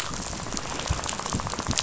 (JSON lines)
{"label": "biophony, rattle", "recorder": "SoundTrap 500"}